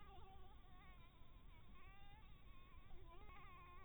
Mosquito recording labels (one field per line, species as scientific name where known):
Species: Anopheles dirus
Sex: female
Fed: blood-fed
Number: one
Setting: cup